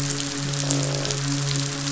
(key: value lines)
label: biophony, midshipman
recorder: SoundTrap 500

label: biophony, croak
recorder: SoundTrap 500